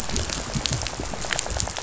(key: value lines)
label: biophony, rattle
recorder: SoundTrap 500